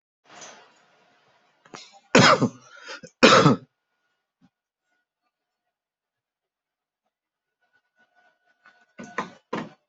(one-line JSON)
{"expert_labels": [{"quality": "good", "cough_type": "dry", "dyspnea": false, "wheezing": false, "stridor": false, "choking": false, "congestion": false, "nothing": true, "diagnosis": "upper respiratory tract infection", "severity": "mild"}], "age": 54, "gender": "male", "respiratory_condition": false, "fever_muscle_pain": false, "status": "healthy"}